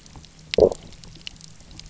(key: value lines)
label: biophony, low growl
recorder: SoundTrap 300